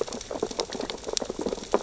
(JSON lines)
{"label": "biophony, sea urchins (Echinidae)", "recorder": "SoundTrap 600 or HydroMoth"}